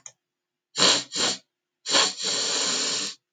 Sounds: Sniff